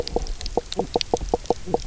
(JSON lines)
{"label": "biophony, knock croak", "recorder": "SoundTrap 300"}